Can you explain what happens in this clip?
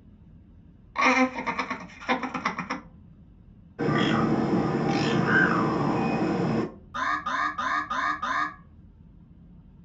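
At 0.94 seconds, laughter is heard. After that, at 3.78 seconds, a bird can be heard. Later, at 6.94 seconds, an alarm is audible. A faint continuous noise persists.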